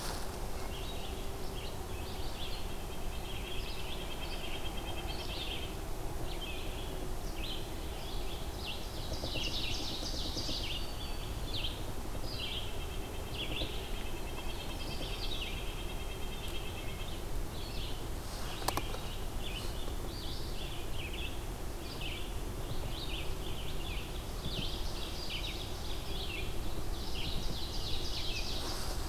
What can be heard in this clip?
Red-eyed Vireo, Red-breasted Nuthatch, Ovenbird, Black-throated Green Warbler